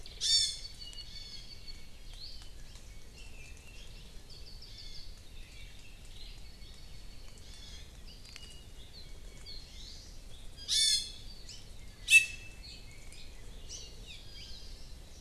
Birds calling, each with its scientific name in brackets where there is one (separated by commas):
Apapane (Himatione sanguinea), Hawaii Creeper (Loxops mana), Iiwi (Drepanis coccinea), Hawaii Amakihi (Chlorodrepanis virens)